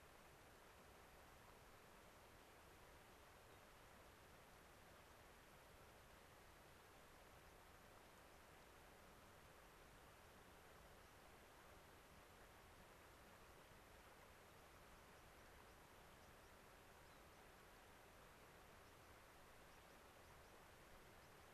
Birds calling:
unidentified bird, White-crowned Sparrow (Zonotrichia leucophrys)

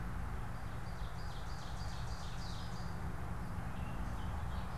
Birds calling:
Gray Catbird (Dumetella carolinensis), Ovenbird (Seiurus aurocapilla)

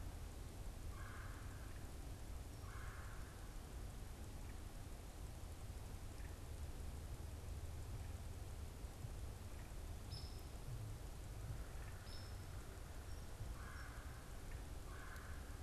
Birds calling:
Hairy Woodpecker (Dryobates villosus), Red-bellied Woodpecker (Melanerpes carolinus)

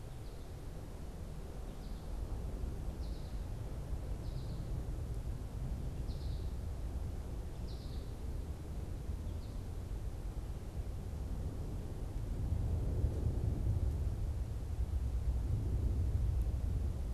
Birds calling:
American Goldfinch (Spinus tristis)

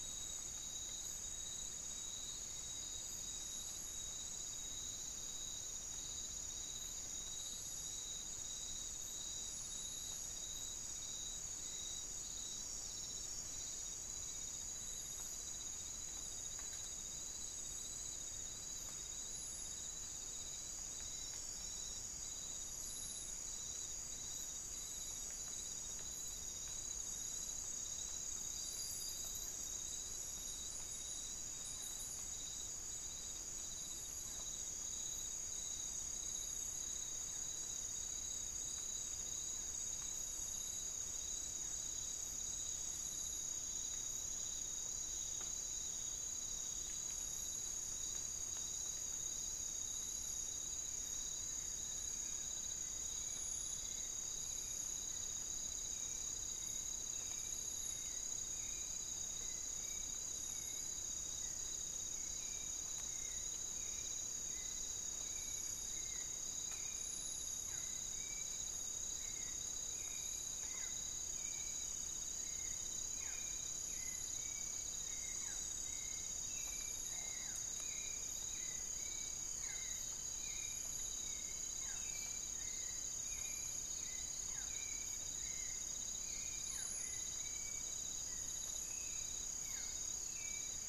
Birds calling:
unidentified bird, Barred Forest-Falcon (Micrastur ruficollis), Hauxwell's Thrush (Turdus hauxwelli)

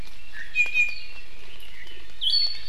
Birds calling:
Iiwi (Drepanis coccinea)

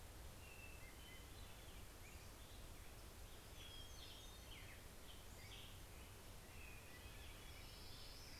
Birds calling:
Hermit Thrush (Catharus guttatus), Pacific-slope Flycatcher (Empidonax difficilis), Black-headed Grosbeak (Pheucticus melanocephalus), Hermit Warbler (Setophaga occidentalis), Orange-crowned Warbler (Leiothlypis celata)

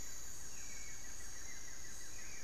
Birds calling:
Hauxwell's Thrush (Turdus hauxwelli), Buff-throated Woodcreeper (Xiphorhynchus guttatus)

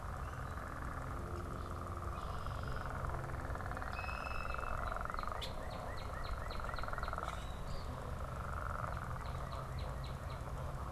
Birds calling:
unidentified bird, Northern Cardinal (Cardinalis cardinalis), Red-winged Blackbird (Agelaius phoeniceus), Eastern Phoebe (Sayornis phoebe)

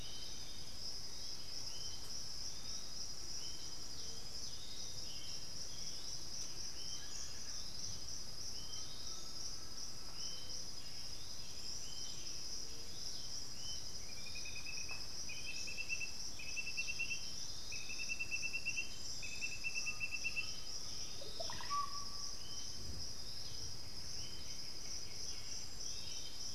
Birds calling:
Russet-backed Oropendola (Psarocolius angustifrons), White-winged Becard (Pachyramphus polychopterus), unidentified bird, Undulated Tinamou (Crypturellus undulatus), Bluish-fronted Jacamar (Galbula cyanescens), Black-billed Thrush (Turdus ignobilis), Piratic Flycatcher (Legatus leucophaius)

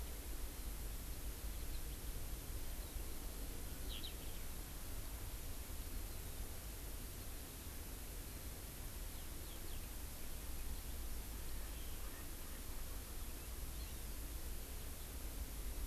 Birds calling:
Hawaii Amakihi (Chlorodrepanis virens), Eurasian Skylark (Alauda arvensis), Erckel's Francolin (Pternistis erckelii)

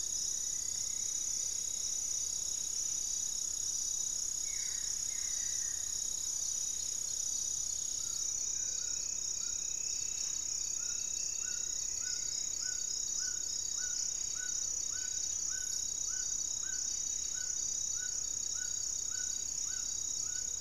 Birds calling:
Buff-breasted Wren (Cantorchilus leucotis), Buff-throated Woodcreeper (Xiphorhynchus guttatus), Striped Woodcreeper (Xiphorhynchus obsoletus), Amazonian Trogon (Trogon ramonianus)

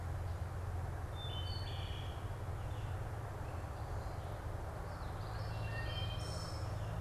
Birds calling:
Wood Thrush (Hylocichla mustelina), Common Yellowthroat (Geothlypis trichas)

